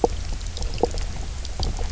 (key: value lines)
label: biophony, knock croak
recorder: SoundTrap 300